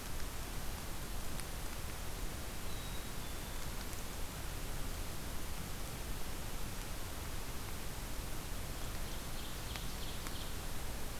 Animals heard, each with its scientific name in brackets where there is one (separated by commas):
Black-capped Chickadee (Poecile atricapillus), Ovenbird (Seiurus aurocapilla)